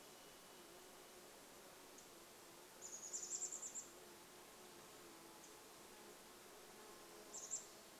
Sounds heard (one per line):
insect buzz
Chestnut-backed Chickadee call
unidentified bird chip note
Varied Thrush song